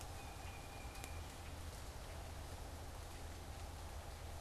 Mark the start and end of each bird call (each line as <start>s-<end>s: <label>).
0.0s-1.4s: Tufted Titmouse (Baeolophus bicolor)